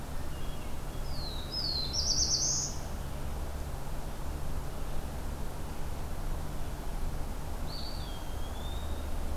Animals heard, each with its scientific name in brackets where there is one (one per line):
Eastern Wood-Pewee (Contopus virens)
Black-throated Blue Warbler (Setophaga caerulescens)
Hermit Thrush (Catharus guttatus)